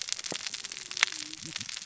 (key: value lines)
label: biophony, cascading saw
recorder: SoundTrap 600 or HydroMoth